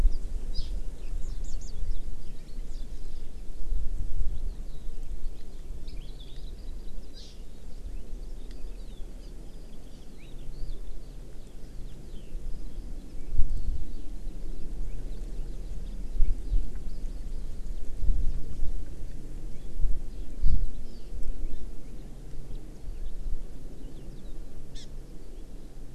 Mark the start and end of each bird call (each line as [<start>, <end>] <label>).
[0.52, 0.72] Hawaii Amakihi (Chlorodrepanis virens)
[1.22, 1.72] Warbling White-eye (Zosterops japonicus)
[6.22, 6.92] Hawaii Amakihi (Chlorodrepanis virens)
[7.22, 7.42] Hawaii Amakihi (Chlorodrepanis virens)
[8.22, 13.62] Eurasian Skylark (Alauda arvensis)
[9.22, 9.32] Hawaii Amakihi (Chlorodrepanis virens)
[9.92, 10.02] Hawaii Amakihi (Chlorodrepanis virens)
[20.42, 21.12] Hawaii Amakihi (Chlorodrepanis virens)
[24.72, 24.82] Hawaii Amakihi (Chlorodrepanis virens)